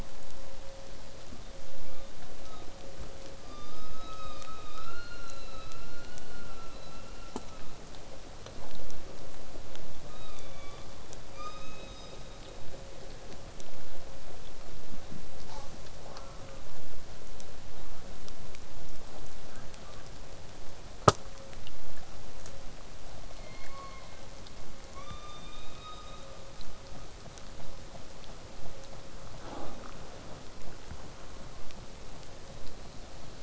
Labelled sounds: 1.2	2.7	killer whale, southern resident, 0.97 to 3.9 kHz
10.1	11.0	killer whale, southern resident, 0.93 to 6.5 kHz
11.3	12.6	killer whale, southern resident, 1.1 to 7.7 kHz
15.5	15.7	killer whale, southern resident, J pod, call S05, 0.39 to 8.0 kHz
15.9	16.7	killer whale, southern resident, J pod, call S04, 0.39 to 1.7 kHz
23.3	24.2	killer whale, southern resident, call S16, 0.89 to 4.7 kHz
25.0	26.4	killer whale, southern resident, call S17, 0.93 to 6.5 kHz

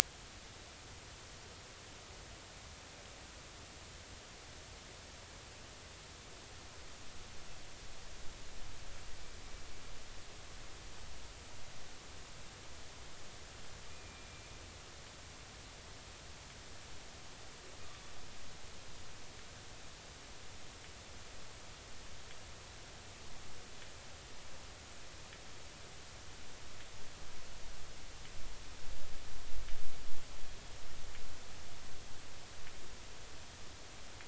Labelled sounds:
13.9	14.6	killer whale, 2.2 to 2.6 kHz

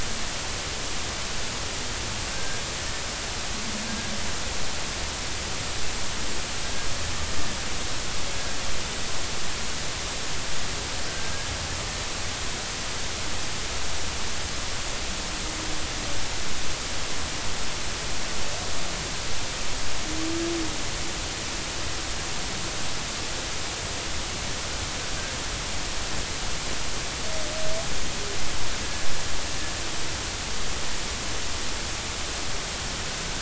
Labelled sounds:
2.3	2.6	killer whale, 1.5 to 1.7 kHz

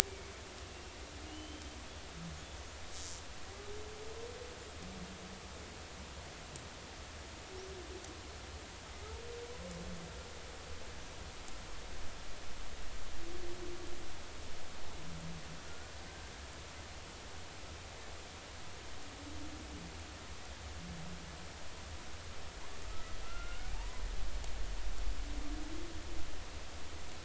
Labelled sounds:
1.3	1.7	killer whale, Bigg's (transient), 2.8 to 3.2 kHz
15.7	15.9	killer whale, Bigg's (transient), 1.3 to 1.5 kHz
22.9	24.0	killer whale, Bigg's (transient), 0.80 to 2.1 kHz

